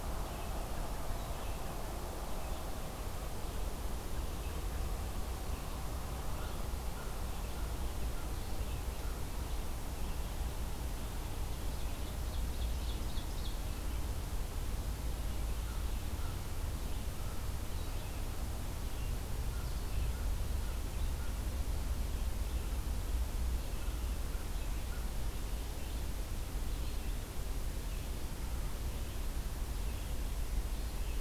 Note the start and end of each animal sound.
0.0s-31.2s: Red-eyed Vireo (Vireo olivaceus)
6.3s-7.3s: American Crow (Corvus brachyrhynchos)
11.8s-13.6s: Ovenbird (Seiurus aurocapilla)
15.6s-18.0s: American Crow (Corvus brachyrhynchos)
19.4s-21.4s: American Crow (Corvus brachyrhynchos)

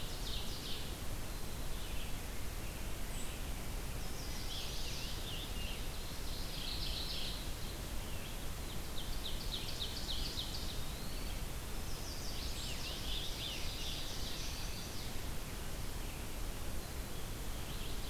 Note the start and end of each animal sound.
0.0s-1.0s: Ovenbird (Seiurus aurocapilla)
0.0s-8.4s: Red-eyed Vireo (Vireo olivaceus)
1.2s-2.3s: Black-capped Chickadee (Poecile atricapillus)
3.8s-5.3s: Chestnut-sided Warbler (Setophaga pensylvanica)
4.2s-6.0s: Scarlet Tanager (Piranga olivacea)
6.3s-7.7s: Mourning Warbler (Geothlypis philadelphia)
8.4s-11.0s: Ovenbird (Seiurus aurocapilla)
10.0s-11.7s: Eastern Wood-Pewee (Contopus virens)
11.6s-13.1s: Chestnut-sided Warbler (Setophaga pensylvanica)
12.2s-14.1s: Scarlet Tanager (Piranga olivacea)
12.6s-14.7s: Ovenbird (Seiurus aurocapilla)
13.8s-18.1s: Red-eyed Vireo (Vireo olivaceus)
14.2s-15.2s: Chestnut-sided Warbler (Setophaga pensylvanica)
17.6s-18.1s: Mourning Warbler (Geothlypis philadelphia)

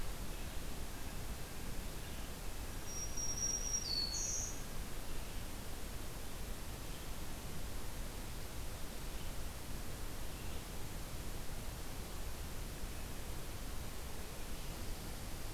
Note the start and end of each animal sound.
2.6s-4.7s: Black-throated Green Warbler (Setophaga virens)

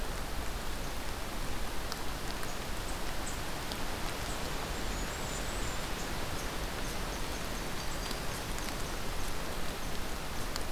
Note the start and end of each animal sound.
2.3s-10.7s: Red Squirrel (Tamiasciurus hudsonicus)
4.6s-5.8s: Blackburnian Warbler (Setophaga fusca)
7.5s-8.2s: Black-throated Green Warbler (Setophaga virens)

